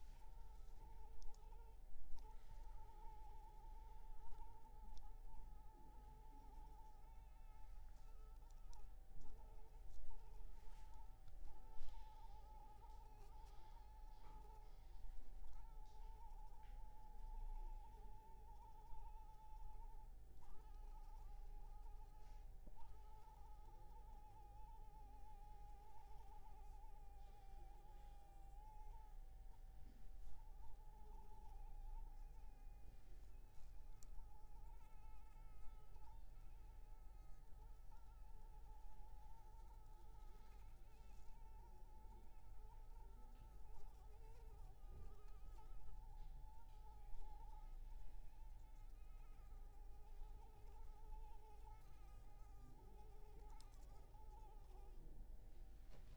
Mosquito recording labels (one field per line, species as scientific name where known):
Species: Anopheles arabiensis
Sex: female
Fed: unfed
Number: one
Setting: cup